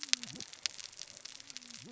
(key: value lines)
label: biophony, cascading saw
recorder: SoundTrap 600 or HydroMoth